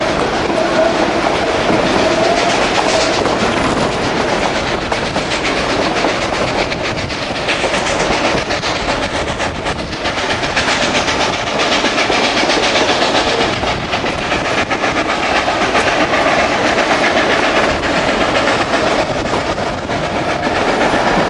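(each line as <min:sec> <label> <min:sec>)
0:00.0 A train moves rhythmically on train tracks. 0:21.3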